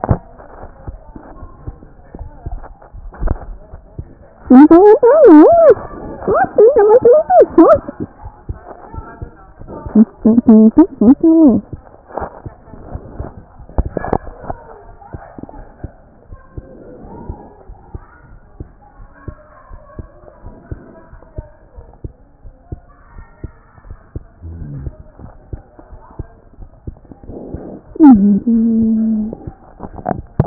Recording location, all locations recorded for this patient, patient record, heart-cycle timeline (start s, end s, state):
aortic valve (AV)
aortic valve (AV)+pulmonary valve (PV)+tricuspid valve (TV)+mitral valve (MV)
#Age: Child
#Sex: Male
#Height: 127.0 cm
#Weight: 28.0 kg
#Pregnancy status: False
#Murmur: Absent
#Murmur locations: nan
#Most audible location: nan
#Systolic murmur timing: nan
#Systolic murmur shape: nan
#Systolic murmur grading: nan
#Systolic murmur pitch: nan
#Systolic murmur quality: nan
#Diastolic murmur timing: nan
#Diastolic murmur shape: nan
#Diastolic murmur grading: nan
#Diastolic murmur pitch: nan
#Diastolic murmur quality: nan
#Outcome: Normal
#Campaign: 2014 screening campaign
0.00	15.58	unannotated
15.58	15.69	S1
15.69	15.84	systole
15.84	15.90	S2
15.90	16.30	diastole
16.30	16.41	S1
16.41	16.58	systole
16.58	16.66	S2
16.66	17.04	diastole
17.04	17.14	S1
17.14	17.30	systole
17.30	17.36	S2
17.36	17.72	diastole
17.72	17.82	S1
17.82	17.96	systole
17.96	18.02	S2
18.02	18.30	diastole
18.30	18.41	S1
18.41	18.60	systole
18.60	18.66	S2
18.66	18.98	diastole
18.98	19.09	S1
19.09	19.29	systole
19.29	19.34	S2
19.34	19.71	diastole
19.71	30.46	unannotated